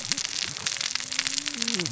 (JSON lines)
{"label": "biophony, cascading saw", "recorder": "SoundTrap 600 or HydroMoth"}